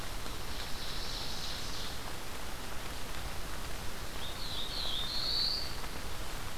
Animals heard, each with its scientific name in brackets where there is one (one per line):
Ovenbird (Seiurus aurocapilla)
Black-throated Blue Warbler (Setophaga caerulescens)